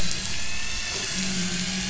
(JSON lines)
{"label": "anthrophony, boat engine", "recorder": "SoundTrap 500"}